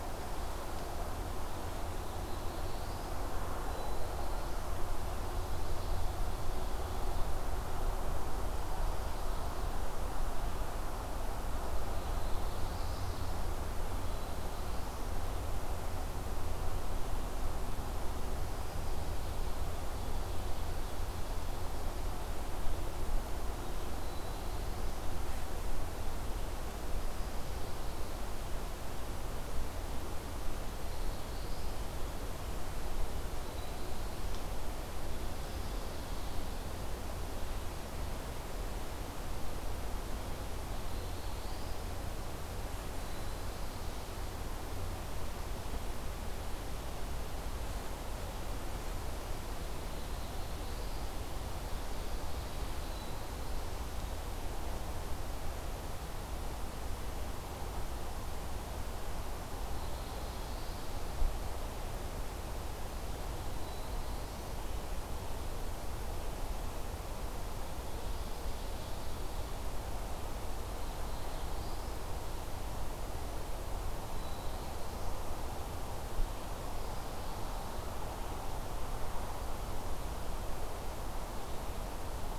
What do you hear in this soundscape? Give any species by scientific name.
Setophaga caerulescens